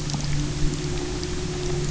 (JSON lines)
{"label": "anthrophony, boat engine", "recorder": "SoundTrap 300"}